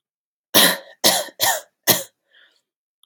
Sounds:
Cough